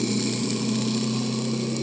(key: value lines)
label: anthrophony, boat engine
recorder: HydroMoth